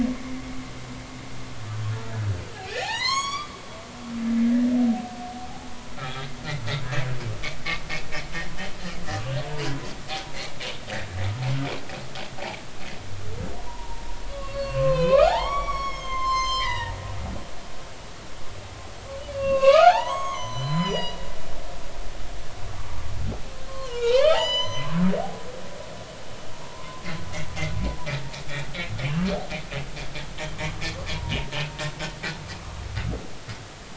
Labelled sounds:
2.6	3.6	humpback whale, 0.80 to 8.0 kHz
4.4	4.7	humpback whale, 1.6 to 2.0 kHz
5.9	6.3	humpback whale, 1.2 to 3.4 kHz
6.8	7.1	humpback whale, 1.6 to 2.0 kHz
13.6	17.0	humpback whale, 0.80 to 8.0 kHz
19.3	21.2	humpback whale, 0.80 to 7.7 kHz
22.8	25.0	humpback whale, 0.80 to 8.0 kHz
26.7	27.0	humpback whale, 0.93 to 1.1 kHz
32.6	32.9	humpback whale, 0.99 to 1.3 kHz

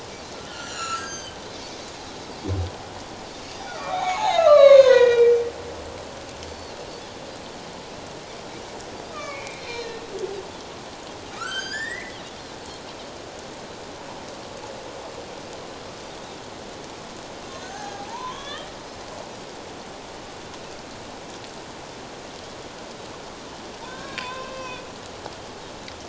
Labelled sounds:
0.5	1.4	humpback whale, 1.2 to 8.0 kHz
3.5	3.8	Pacific white-sided dolphin, 3.4 to 3.6 kHz
3.7	5.4	humpback whale, 0.78 to 6.8 kHz
6.5	6.7	Pacific white-sided dolphin, 4.2 to 4.5 kHz
9.1	10.0	humpback whale, 1.1 to 4.3 kHz
11.3	12.2	humpback whale, 1.2 to 8.0 kHz
17.6	18.7	humpback whale, 0.78 to 3.8 kHz
23.8	24.8	humpback whale, 0.88 to 4.7 kHz

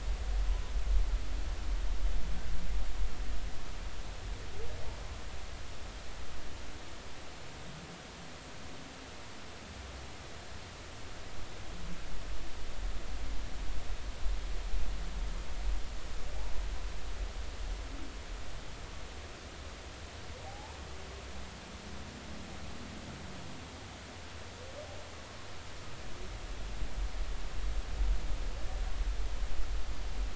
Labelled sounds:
20.4	20.8	humpback whale, 0.80 to 1.1 kHz

